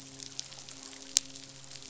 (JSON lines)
{"label": "biophony, midshipman", "recorder": "SoundTrap 500"}